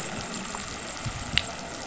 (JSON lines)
{"label": "anthrophony, boat engine", "recorder": "SoundTrap 500"}